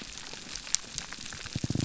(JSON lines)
{"label": "biophony", "recorder": "SoundTrap 300"}